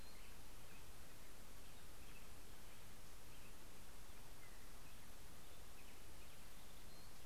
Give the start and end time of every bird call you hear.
[0.00, 3.44] Black-headed Grosbeak (Pheucticus melanocephalus)

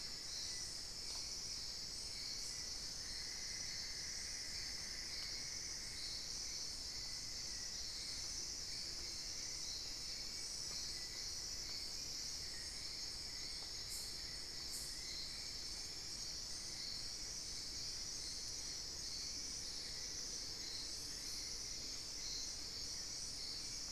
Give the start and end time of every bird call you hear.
[2.90, 6.30] Cinnamon-throated Woodcreeper (Dendrexetastes rufigula)

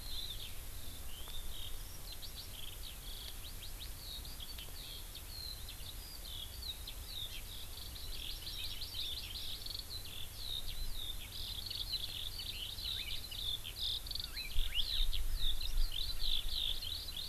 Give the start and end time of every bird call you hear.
[0.00, 17.28] Eurasian Skylark (Alauda arvensis)
[7.30, 7.40] Hawaii Amakihi (Chlorodrepanis virens)
[8.00, 9.50] Hawaii Amakihi (Chlorodrepanis virens)
[14.20, 15.00] Hawaii Elepaio (Chasiempis sandwichensis)

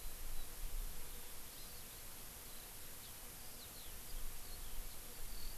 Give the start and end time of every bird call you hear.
[1.57, 1.87] Hawaii Amakihi (Chlorodrepanis virens)
[2.97, 5.57] Eurasian Skylark (Alauda arvensis)

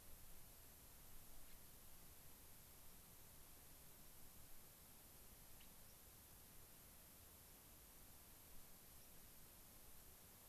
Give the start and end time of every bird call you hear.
[1.40, 1.60] Gray-crowned Rosy-Finch (Leucosticte tephrocotis)
[5.60, 5.70] Gray-crowned Rosy-Finch (Leucosticte tephrocotis)
[5.90, 6.00] White-crowned Sparrow (Zonotrichia leucophrys)
[9.00, 9.10] White-crowned Sparrow (Zonotrichia leucophrys)

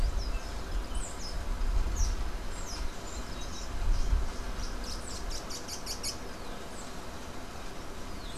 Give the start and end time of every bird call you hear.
[0.00, 6.36] unidentified bird

